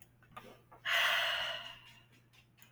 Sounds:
Sigh